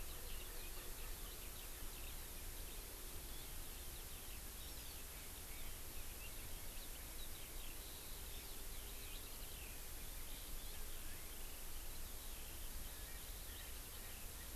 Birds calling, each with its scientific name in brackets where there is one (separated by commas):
Eurasian Skylark (Alauda arvensis)